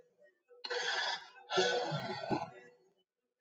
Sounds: Sigh